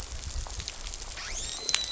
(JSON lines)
{"label": "biophony, dolphin", "recorder": "SoundTrap 500"}